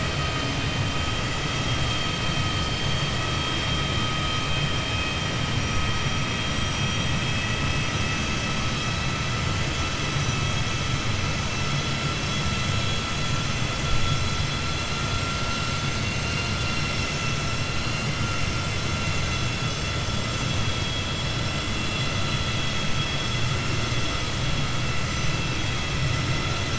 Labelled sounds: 20.7	21.1	vessel noise, 2.6 to 4.0 kHz

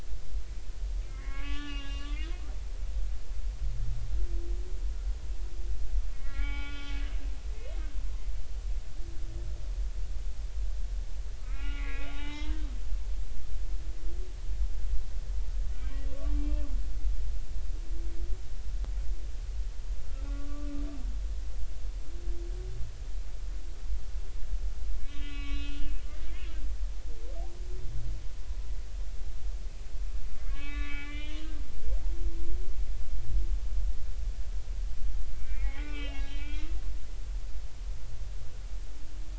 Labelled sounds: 1.1	2.4	humpback whale, 0.80 to 4.9 kHz
6.1	6.9	humpback whale, 0.80 to 4.9 kHz
11.4	12.7	humpback whale, 0.80 to 4.0 kHz
16.1	16.7	humpback whale, 1.1 to 2.7 kHz
20.2	20.7	humpback whale, 1.1 to 1.5 kHz
25.0	26.3	humpback whale, 1.1 to 4.1 kHz
30.4	31.4	humpback whale, 1.1 to 3.8 kHz
35.4	36.7	humpback whale, 1.1 to 4.0 kHz

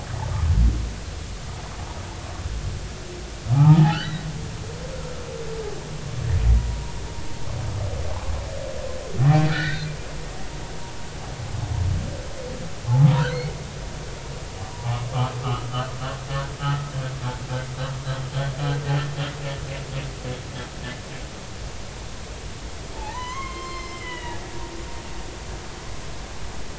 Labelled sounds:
3.5	4.2	humpback whale, 0.80 to 3.1 kHz
6.6	6.8	humpback whale, 0.93 to 0.99 kHz
9.4	9.9	humpback whale, 1.3 to 4.2 kHz
13.2	13.5	humpback whale, 3.8 to 4.4 kHz
15.4	15.7	humpback whale, 1.1 to 1.4 kHz
16.6	16.9	humpback whale, 1.2 to 1.5 kHz
22.9	24.4	humpback whale, 0.80 to 4.3 kHz

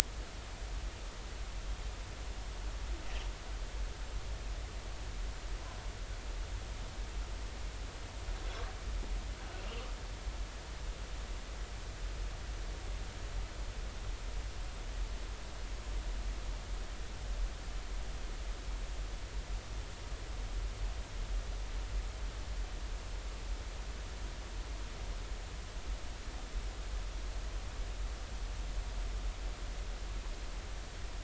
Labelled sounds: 9.5	9.8	humpback whale, 2.6 to 3.0 kHz

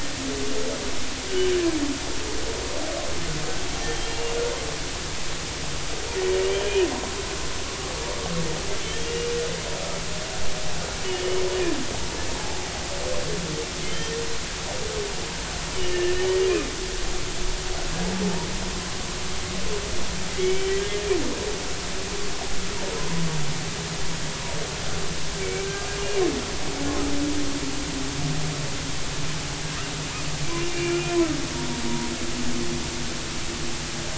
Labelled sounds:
3.9	4.3	humpback whale, 2.7 to 3.3 kHz
8.8	9.2	humpback whale, 3.0 to 3.3 kHz
12.4	12.7	humpback whale, 0.80 to 0.90 kHz
13.8	14.2	humpback whale, 1.7 to 3.2 kHz
15.8	16.4	humpback whale, 2.8 to 3.0 kHz
20.4	20.8	humpback whale, 2.2 to 3.1 kHz
25.4	25.7	humpback whale, 2.2 to 2.4 kHz
30.6	31.0	humpback whale, 2.2 to 2.9 kHz

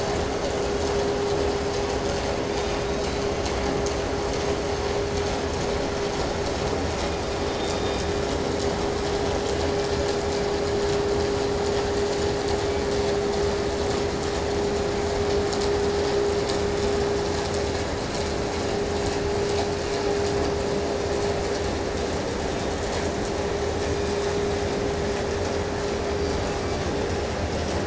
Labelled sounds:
2.3	3.4	killer whale, 1.8 to 4.2 kHz
6.6	8.5	killer whale, southern resident, 1.8 to 5.3 kHz
9.4	10.7	killer whale, 1.2 to 3.8 kHz
12.4	13.3	killer whale, 1.9 to 2.8 kHz
23.7	25.5	killer whale, 2.8 to 5.2 kHz
26.0	27.3	killer whale, 1.8 to 5.1 kHz

